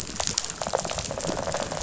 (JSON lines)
{"label": "biophony, rattle response", "recorder": "SoundTrap 500"}